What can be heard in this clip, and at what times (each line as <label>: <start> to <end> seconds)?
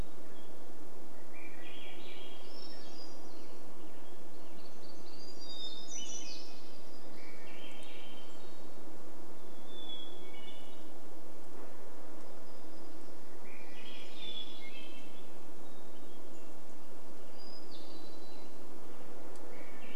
unidentified sound: 0 to 2 seconds
Swainson's Thrush song: 0 to 4 seconds
vehicle engine: 0 to 20 seconds
Hermit Thrush song: 2 to 6 seconds
Western Tanager song: 2 to 6 seconds
warbler song: 4 to 8 seconds
Swainson's Thrush song: 6 to 10 seconds
Hermit Thrush song: 8 to 12 seconds
Swainson's Thrush song: 12 to 16 seconds
warbler song: 12 to 16 seconds
Hermit Thrush song: 14 to 20 seconds
Swainson's Thrush song: 18 to 20 seconds